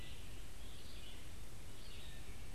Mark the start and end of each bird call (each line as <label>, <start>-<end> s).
Red-eyed Vireo (Vireo olivaceus), 0.0-2.5 s
Scarlet Tanager (Piranga olivacea), 0.0-2.5 s